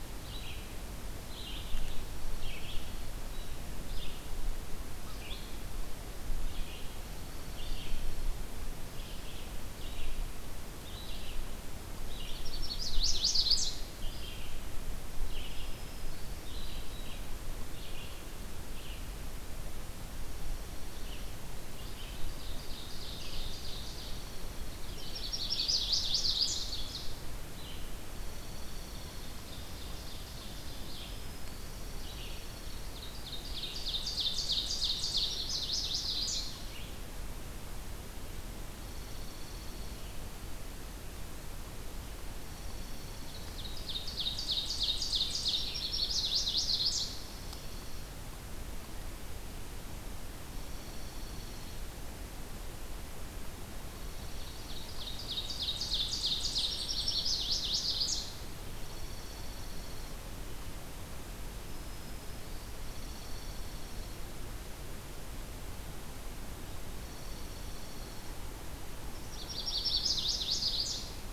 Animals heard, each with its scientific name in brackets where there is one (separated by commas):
Chestnut-sided Warbler (Setophaga pensylvanica), Ovenbird (Seiurus aurocapilla), Red-eyed Vireo (Vireo olivaceus), Black-throated Green Warbler (Setophaga virens), Dark-eyed Junco (Junco hyemalis)